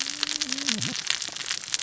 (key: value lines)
label: biophony, cascading saw
recorder: SoundTrap 600 or HydroMoth